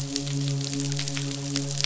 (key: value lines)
label: biophony, midshipman
recorder: SoundTrap 500